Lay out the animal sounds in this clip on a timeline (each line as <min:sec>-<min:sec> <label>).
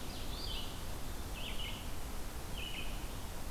0:00.0-0:03.5 Red-eyed Vireo (Vireo olivaceus)